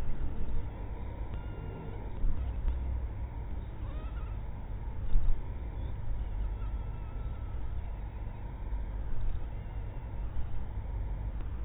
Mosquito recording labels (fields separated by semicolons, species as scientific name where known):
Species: mosquito; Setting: cup